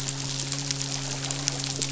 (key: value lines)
label: biophony, midshipman
recorder: SoundTrap 500